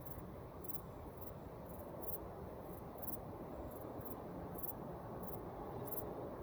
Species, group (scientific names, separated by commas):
Pholidoptera griseoaptera, Orthoptera